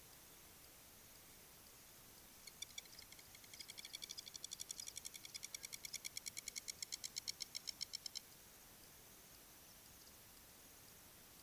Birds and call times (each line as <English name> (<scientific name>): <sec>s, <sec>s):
Long-toed Lapwing (Vanellus crassirostris): 6.0s